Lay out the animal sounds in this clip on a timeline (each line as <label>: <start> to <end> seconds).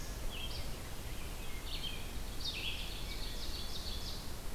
Red-eyed Vireo (Vireo olivaceus): 0.1 to 4.5 seconds
Ovenbird (Seiurus aurocapilla): 2.0 to 4.2 seconds
Wood Thrush (Hylocichla mustelina): 2.9 to 3.6 seconds